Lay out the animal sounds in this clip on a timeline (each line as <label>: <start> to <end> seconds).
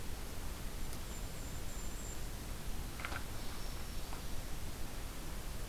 Golden-crowned Kinglet (Regulus satrapa): 0.8 to 2.5 seconds
Black-throated Green Warbler (Setophaga virens): 3.1 to 4.7 seconds